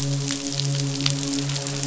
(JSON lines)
{"label": "biophony, midshipman", "recorder": "SoundTrap 500"}